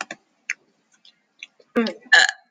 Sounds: Throat clearing